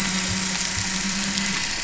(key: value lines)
label: anthrophony, boat engine
recorder: SoundTrap 500